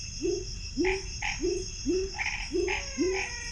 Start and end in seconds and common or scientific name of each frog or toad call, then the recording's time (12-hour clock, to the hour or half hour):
0.0	3.5	pepper frog
0.8	3.4	Chaco tree frog
~7pm